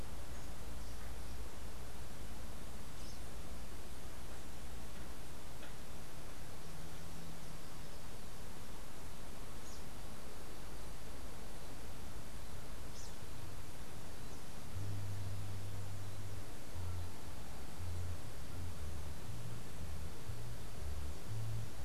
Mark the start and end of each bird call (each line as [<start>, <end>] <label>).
[9.24, 13.54] unidentified bird